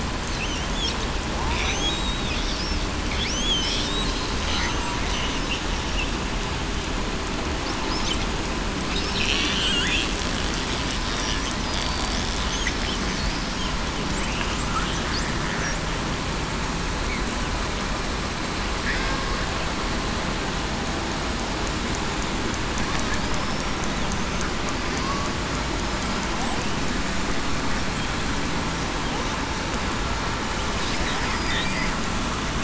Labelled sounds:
1.6	1.9	killer whale, southern resident, 5.5 to 6.6 kHz
3.3	3.7	killer whale, southern resident, 2.9 to 3.4 kHz
9.6	10.0	killer whale, southern resident, 3.2 to 3.6 kHz
23.3	23.6	killer whale, southern resident, 5.0 to 5.4 kHz

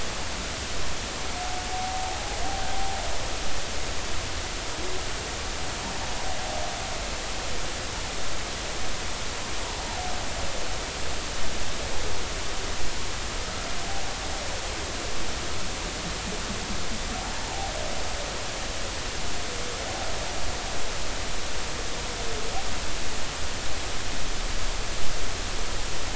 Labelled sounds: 2.7	3.0	humpback whale, 0.80 to 0.90 kHz
9.8	10.1	humpback whale, 0.80 to 0.96 kHz

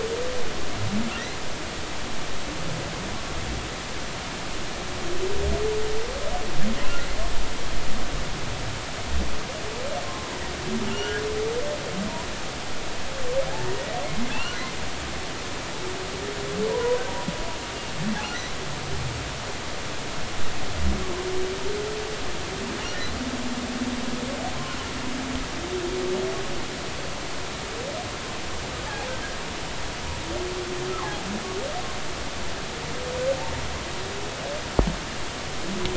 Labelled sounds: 10.0	11.2	humpback whale, 0.99 to 3.1 kHz
13.5	13.7	humpback whale, 0.80 to 0.96 kHz
14.3	14.6	humpback whale, 2.5 to 3.0 kHz
16.6	17.0	humpback whale, 0.90 to 1.1 kHz
18.2	18.5	humpback whale, 5.6 to 6.0 kHz

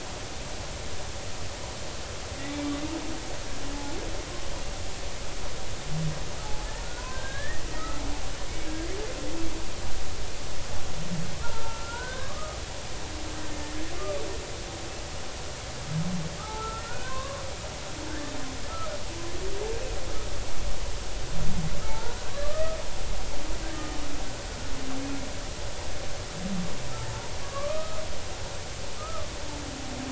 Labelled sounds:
6.4	6.7	humpback whale, 0.80 to 0.90 kHz
7.1	8.0	humpback whale, 1.2 to 2.0 kHz
11.4	12.6	humpback whale, 0.99 to 1.7 kHz
13.5	13.8	humpback whale, 1.7 to 1.9 kHz
16.4	17.4	humpback whale, 0.80 to 1.7 kHz
18.1	18.3	humpback whale, 1.4 to 1.8 kHz
21.8	22.8	humpback whale, 0.83 to 1.3 kHz
23.6	23.9	humpback whale, 1.5 to 1.9 kHz
27.4	28.0	humpback whale, 1.1 to 1.3 kHz
29.0	29.3	humpback whale, 1.1 to 1.4 kHz

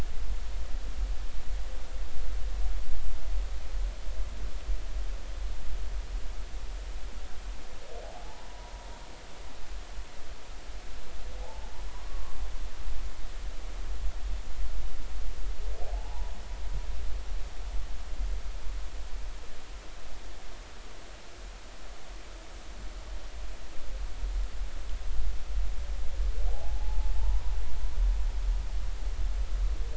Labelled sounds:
8.0	8.7	humpback whale, 0.80 to 1.0 kHz
11.4	12.4	humpback whale, 0.80 to 1.2 kHz
15.8	16.3	humpback whale, 0.80 to 1.0 kHz
26.5	27.4	humpback whale, 0.80 to 1.0 kHz

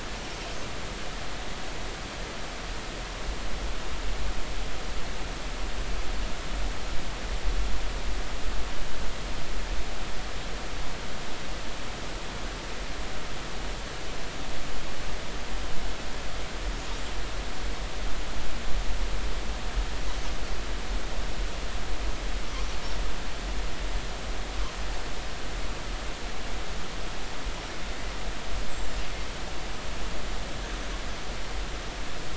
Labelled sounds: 28.7	29.0	killer whale, northern resident, 7.1 to 7.7 kHz

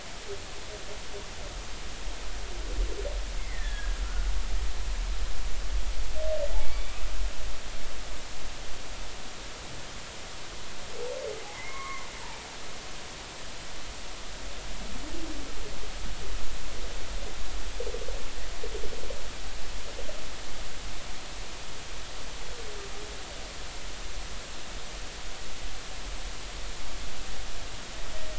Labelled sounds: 3.4	4.3	humpback whale, 1.3 to 2.2 kHz
6.6	6.9	humpback whale, 2.2 to 2.4 kHz
11.5	12.1	humpback whale, 0.96 to 2.2 kHz

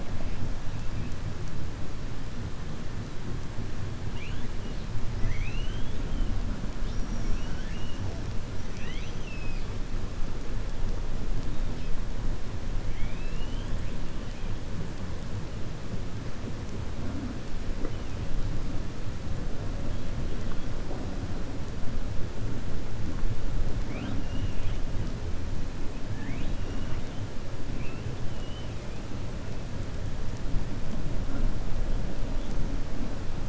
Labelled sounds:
5.1	6.0	killer whale, 1.8 to 6.1 kHz
7.3	8.0	killer whale, 0.92 to 3.5 kHz
8.5	9.7	killer whale, 1.9 to 6.3 kHz
12.8	13.7	killer whale, 1.9 to 4.0 kHz
26.1	27.1	killer whale, 0.88 to 3.9 kHz
28.3	28.7	killer whale, 2.6 to 3.8 kHz

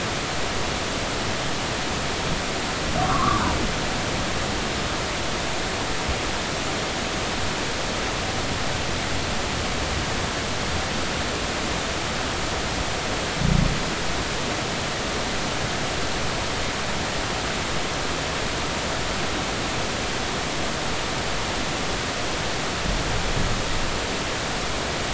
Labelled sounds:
3.0	3.4	humpback whale, 0.99 to 1.4 kHz

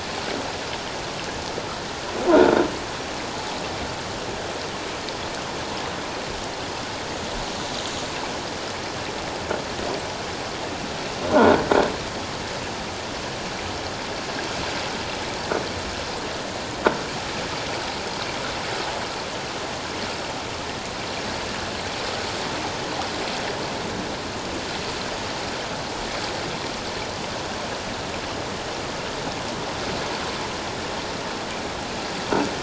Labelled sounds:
2.3	2.6	croaking sound likely from a nearby submerged object, 1.3 to 1.6 kHz
11.3	11.6	croaking sound likely from a nearby submerged object, 1.3 to 1.7 kHz

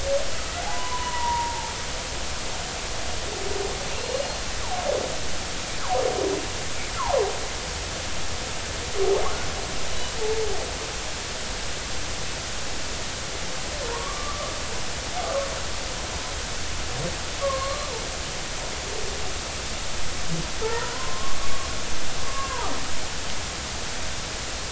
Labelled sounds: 0.6	1.7	humpback whale, 0.80 to 1.1 kHz
7.0	7.2	humpback whale, 0.80 to 1.4 kHz
13.9	14.5	humpback whale, 0.90 to 1.2 kHz
17.4	17.9	humpback whale, 0.99 to 1.2 kHz
20.6	21.4	humpback whale, 0.83 to 1.9 kHz
22.2	22.7	humpback whale, 0.80 to 1.7 kHz

